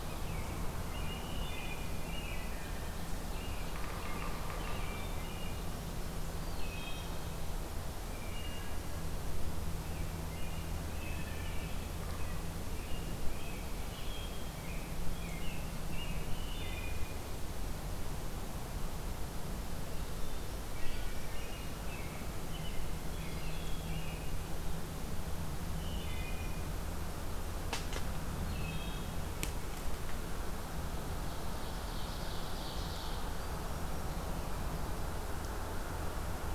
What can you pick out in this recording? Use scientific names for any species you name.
Turdus migratorius, Hylocichla mustelina, Sphyrapicus varius, Seiurus aurocapilla